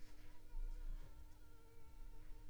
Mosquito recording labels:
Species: Anopheles arabiensis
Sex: female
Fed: unfed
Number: one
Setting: cup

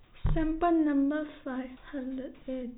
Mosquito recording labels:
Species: no mosquito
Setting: cup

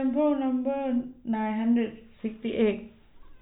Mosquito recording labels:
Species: no mosquito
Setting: cup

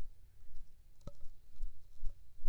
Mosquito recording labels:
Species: Aedes aegypti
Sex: female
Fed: unfed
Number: one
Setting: cup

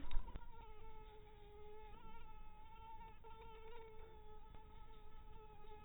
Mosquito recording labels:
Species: mosquito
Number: one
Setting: cup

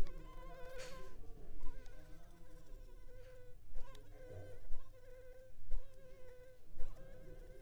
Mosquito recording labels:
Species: Anopheles arabiensis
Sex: female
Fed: unfed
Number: one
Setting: cup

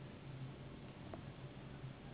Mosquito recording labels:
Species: Anopheles gambiae s.s.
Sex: female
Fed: unfed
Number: one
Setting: insect culture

